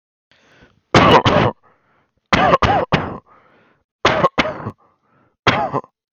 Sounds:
Cough